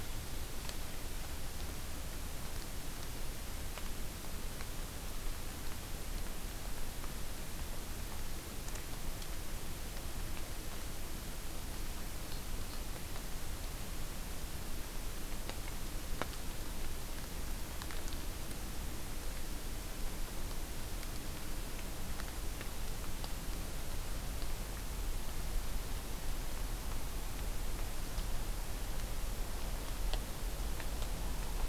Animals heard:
forest ambience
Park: Acadia National Park